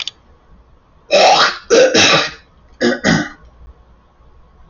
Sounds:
Throat clearing